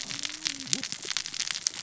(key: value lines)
label: biophony, cascading saw
recorder: SoundTrap 600 or HydroMoth